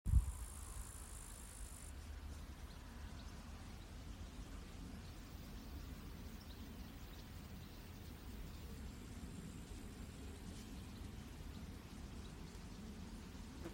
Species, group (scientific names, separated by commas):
Tettigonia cantans, Orthoptera